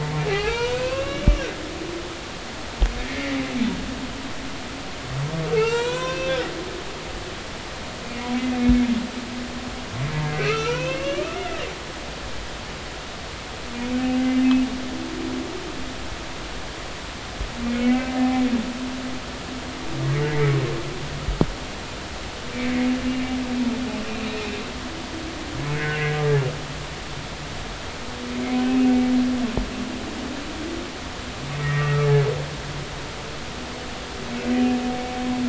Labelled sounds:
0.0	1.4	humpback whale, 0.80 to 6.3 kHz
3.1	3.4	humpback whale, 1.9 to 2.3 kHz
5.5	6.3	humpback whale, 0.83 to 7.8 kHz
10.3	11.4	humpback whale, 1.1 to 6.3 kHz
17.8	18.4	humpback whale, 0.80 to 2.4 kHz
22.5	22.8	humpback whale, 2.2 to 2.4 kHz
25.8	26.0	humpback whale, 1.4 to 1.7 kHz
28.6	28.9	humpback whale, 2.5 to 2.7 kHz
31.6	32.0	humpback whale, 1.8 to 2.0 kHz
34.5	34.8	humpback whale, 2.4 to 2.6 kHz

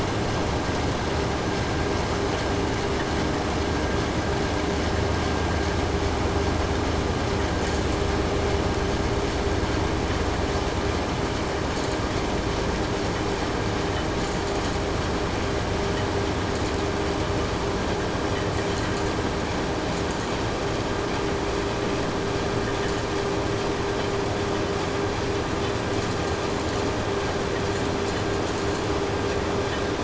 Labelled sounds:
7.5	8.1	vessel noise, 3.3 to 8.0 kHz
11.7	12.1	vessel noise, 3.7 to 8.0 kHz
14.2	14.8	vessel noise, 4.3 to 8.0 kHz
16.5	16.9	vessel noise, 5.2 to 8.0 kHz
18.5	19.1	vessel noise, 3.9 to 8.0 kHz
19.8	20.3	vessel noise, 6.2 to 8.0 kHz
22.8	23.2	vessel noise, 5.6 to 8.0 kHz
25.9	27.0	vessel noise, 3.7 to 8.0 kHz
27.7	29.0	vessel noise, 3.8 to 8.0 kHz

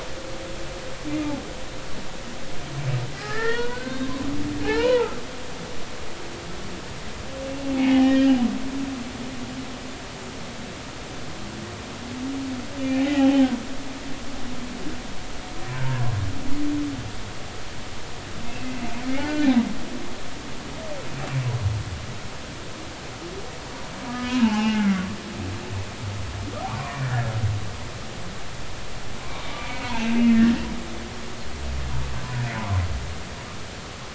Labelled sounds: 3.2	4.1	humpback whale, 0.86 to 2.0 kHz
4.6	5.2	humpback whale, 0.80 to 3.1 kHz
7.5	8.4	humpback whale, 0.80 to 3.0 kHz
12.8	13.5	humpback whale, 0.80 to 2.6 kHz
18.5	19.6	humpback whale, 1.4 to 2.7 kHz
24.1	25.0	humpback whale, 0.80 to 3.0 kHz
26.9	27.3	humpback whale, 1.6 to 2.0 kHz
29.6	30.5	humpback whale, 1.5 to 2.4 kHz

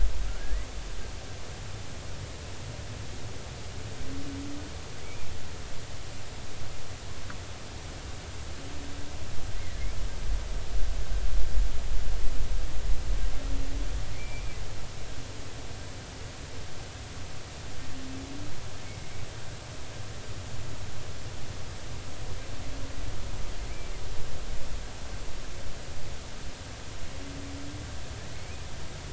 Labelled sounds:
0.4	0.7	humpback whale, 1.6 to 2.0 kHz
5.0	5.3	humpback whale, 2.2 to 2.5 kHz
14.2	14.6	humpback whale, 2.3 to 2.5 kHz
28.3	28.6	humpback whale, 2.1 to 2.6 kHz

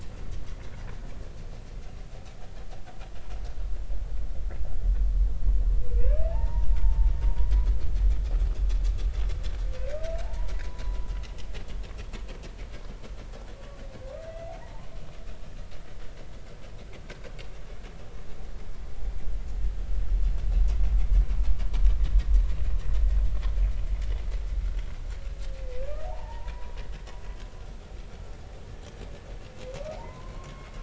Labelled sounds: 6.0	7.5	humpback whale, 0.80 to 2.8 kHz
10.2	11.1	humpback whale, 0.80 to 1.1 kHz
14.3	14.9	humpback whale, 0.83 to 2.8 kHz
26.1	26.7	humpback whale, 0.80 to 1.0 kHz
30.0	30.7	humpback whale, 0.83 to 2.2 kHz

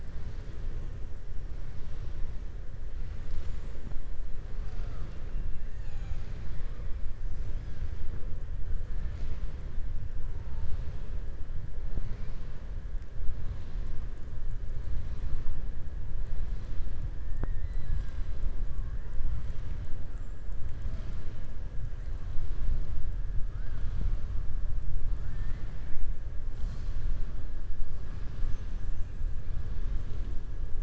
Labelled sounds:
20.0	20.6	killer whale, southern resident, 6.5 to 8.0 kHz
25.2	26.0	killer whale, southern resident, 1.3 to 4.8 kHz

